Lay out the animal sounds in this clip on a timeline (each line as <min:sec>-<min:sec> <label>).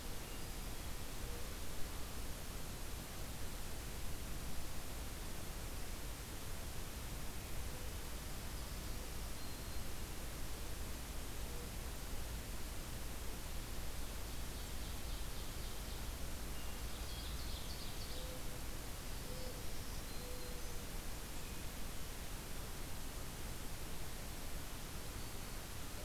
0:00.2-0:00.9 Hermit Thrush (Catharus guttatus)
0:08.6-0:10.0 Black-throated Green Warbler (Setophaga virens)
0:14.2-0:16.2 Ovenbird (Seiurus aurocapilla)
0:16.9-0:18.3 Ovenbird (Seiurus aurocapilla)
0:18.1-0:20.7 Mourning Dove (Zenaida macroura)
0:19.1-0:20.8 Black-throated Green Warbler (Setophaga virens)